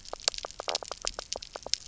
{"label": "biophony, knock croak", "recorder": "SoundTrap 300"}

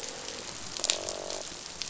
{"label": "biophony, croak", "recorder": "SoundTrap 500"}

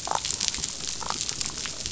{"label": "biophony, damselfish", "recorder": "SoundTrap 500"}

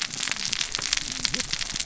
{"label": "biophony, cascading saw", "recorder": "SoundTrap 600 or HydroMoth"}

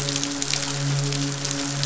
{"label": "biophony, midshipman", "recorder": "SoundTrap 500"}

